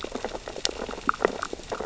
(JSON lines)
{"label": "biophony, sea urchins (Echinidae)", "recorder": "SoundTrap 600 or HydroMoth"}